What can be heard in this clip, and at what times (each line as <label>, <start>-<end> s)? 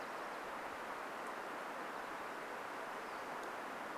Nashville Warbler song, 0-2 s
Pacific-slope Flycatcher call, 2-4 s